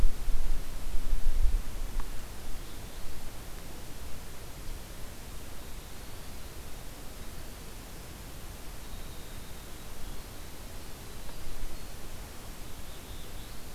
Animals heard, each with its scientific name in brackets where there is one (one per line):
Winter Wren (Troglodytes hiemalis)
Black-throated Blue Warbler (Setophaga caerulescens)